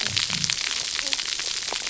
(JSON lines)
{"label": "biophony, cascading saw", "recorder": "SoundTrap 300"}